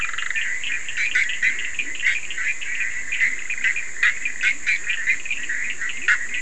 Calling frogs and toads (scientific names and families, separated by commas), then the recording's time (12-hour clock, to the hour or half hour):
Boana bischoffi (Hylidae), Sphaenorhynchus surdus (Hylidae), Leptodactylus latrans (Leptodactylidae)
3:30am